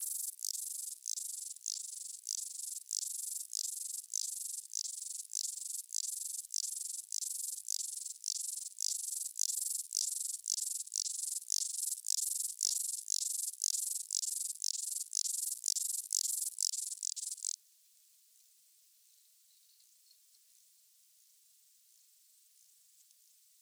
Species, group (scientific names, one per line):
Stauroderus scalaris
Orthoptera